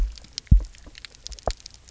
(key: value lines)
label: biophony, double pulse
recorder: SoundTrap 300